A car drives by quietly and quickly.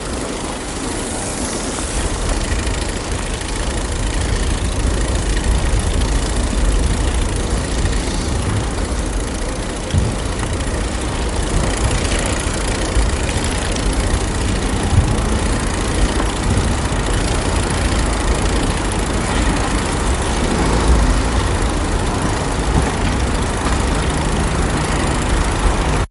14.4 17.0

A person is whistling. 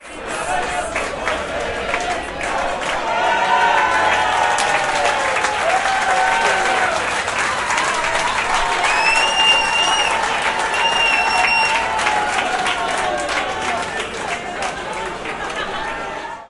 8.9 11.8

